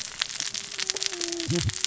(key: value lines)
label: biophony, cascading saw
recorder: SoundTrap 600 or HydroMoth